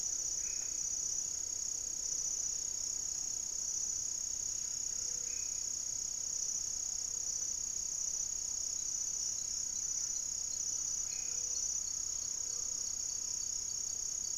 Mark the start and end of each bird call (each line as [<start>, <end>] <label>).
[0.00, 5.78] Black-faced Antthrush (Formicarius analis)
[0.00, 13.08] Gray-fronted Dove (Leptotila rufaxilla)
[4.38, 5.58] Buff-breasted Wren (Cantorchilus leucotis)
[9.28, 13.08] Buff-breasted Wren (Cantorchilus leucotis)
[10.88, 11.48] Black-faced Antthrush (Formicarius analis)
[11.78, 14.28] unidentified bird